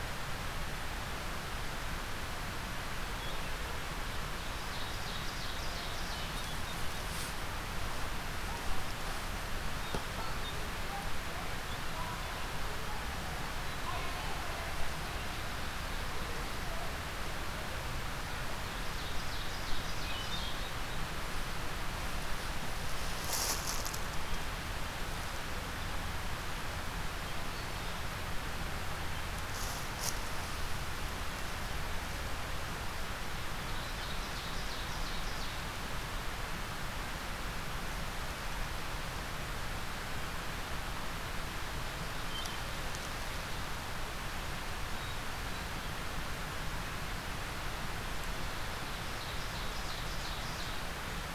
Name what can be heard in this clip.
Ovenbird, Hermit Thrush